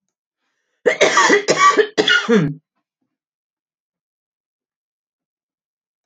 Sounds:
Cough